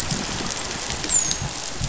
{"label": "biophony, dolphin", "recorder": "SoundTrap 500"}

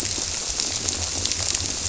{"label": "biophony", "recorder": "SoundTrap 300"}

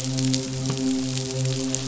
{"label": "biophony, midshipman", "recorder": "SoundTrap 500"}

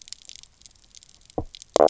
{"label": "biophony, knock croak", "recorder": "SoundTrap 300"}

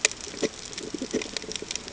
{"label": "ambient", "recorder": "HydroMoth"}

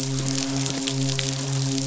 {"label": "biophony, midshipman", "recorder": "SoundTrap 500"}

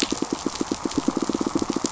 {"label": "biophony, pulse", "recorder": "SoundTrap 500"}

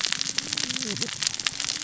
{"label": "biophony, cascading saw", "recorder": "SoundTrap 600 or HydroMoth"}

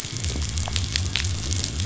{"label": "biophony", "recorder": "SoundTrap 500"}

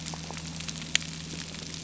{"label": "anthrophony, boat engine", "recorder": "SoundTrap 300"}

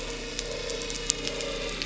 {"label": "anthrophony, boat engine", "recorder": "SoundTrap 300"}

